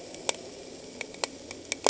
{"label": "anthrophony, boat engine", "recorder": "HydroMoth"}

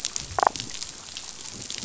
{"label": "biophony, damselfish", "recorder": "SoundTrap 500"}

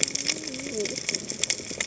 {"label": "biophony, cascading saw", "recorder": "HydroMoth"}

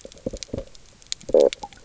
{"label": "biophony, stridulation", "recorder": "SoundTrap 300"}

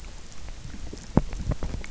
{"label": "biophony, grazing", "recorder": "SoundTrap 300"}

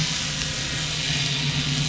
{"label": "anthrophony, boat engine", "recorder": "SoundTrap 500"}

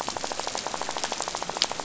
{"label": "biophony, rattle", "recorder": "SoundTrap 500"}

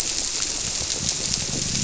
{"label": "biophony", "recorder": "SoundTrap 300"}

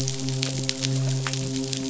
{"label": "biophony, midshipman", "recorder": "SoundTrap 500"}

